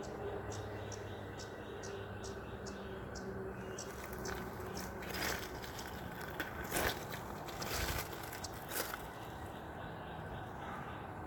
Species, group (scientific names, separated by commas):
Magicicada cassini, Cicadidae